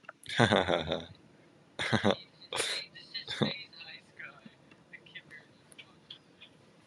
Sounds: Laughter